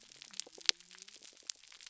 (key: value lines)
label: biophony
recorder: SoundTrap 300